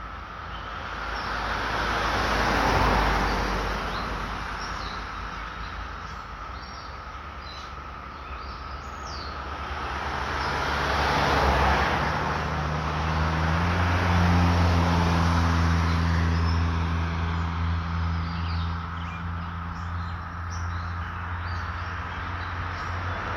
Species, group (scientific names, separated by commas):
Magicicada septendecim, Cicadidae